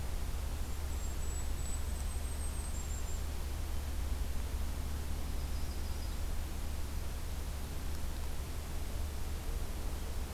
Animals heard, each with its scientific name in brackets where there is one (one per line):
Yellow-rumped Warbler (Setophaga coronata)
Golden-crowned Kinglet (Regulus satrapa)